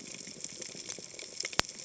{"label": "biophony", "recorder": "HydroMoth"}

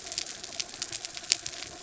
{"label": "anthrophony, mechanical", "recorder": "SoundTrap 300"}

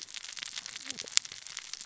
{"label": "biophony, cascading saw", "recorder": "SoundTrap 600 or HydroMoth"}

